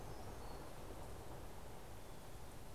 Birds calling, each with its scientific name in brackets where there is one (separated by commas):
Hermit Warbler (Setophaga occidentalis)